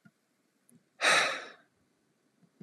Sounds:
Sigh